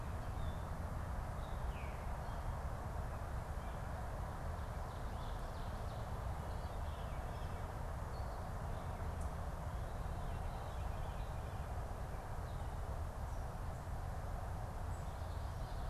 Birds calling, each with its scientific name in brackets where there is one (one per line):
Ovenbird (Seiurus aurocapilla)
Veery (Catharus fuscescens)
unidentified bird